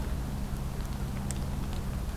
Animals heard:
forest ambience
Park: Acadia National Park